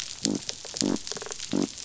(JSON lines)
{"label": "biophony", "recorder": "SoundTrap 500"}
{"label": "biophony, rattle response", "recorder": "SoundTrap 500"}